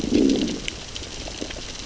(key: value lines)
label: biophony, growl
recorder: SoundTrap 600 or HydroMoth